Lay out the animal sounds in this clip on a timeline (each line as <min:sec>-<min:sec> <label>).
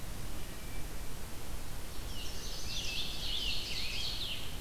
0:00.0-0:01.1 Wood Thrush (Hylocichla mustelina)
0:01.9-0:03.1 Chestnut-sided Warbler (Setophaga pensylvanica)
0:01.9-0:04.3 Scarlet Tanager (Piranga olivacea)
0:02.2-0:04.5 Ovenbird (Seiurus aurocapilla)